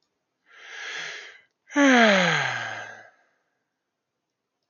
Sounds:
Sigh